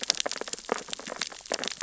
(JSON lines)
{"label": "biophony, sea urchins (Echinidae)", "recorder": "SoundTrap 600 or HydroMoth"}